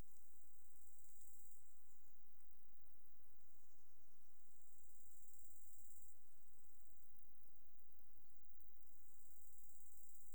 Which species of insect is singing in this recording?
Chorthippus biguttulus